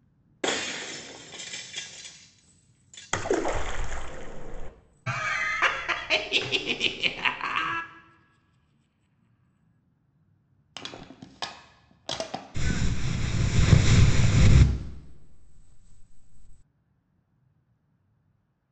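A soft steady noise sits about 40 dB below the sounds. First, at 0.41 seconds, glass shatters. Next, at 3.12 seconds, there is splashing. After that, at 5.06 seconds, you can hear laughter. Following that, at 10.73 seconds, there is the sound of crushing. Finally, at 12.54 seconds, wind is audible.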